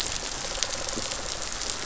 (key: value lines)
label: biophony
recorder: SoundTrap 500